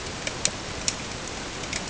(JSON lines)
{"label": "ambient", "recorder": "HydroMoth"}